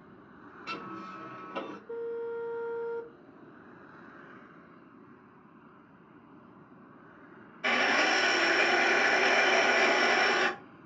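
An unchanging background noise runs about 25 decibels below the sounds. At 0.64 seconds, the sound of a printer is heard. Then at 1.89 seconds, there is a civil defense siren. Finally, at 7.63 seconds, you can hear a loud engine.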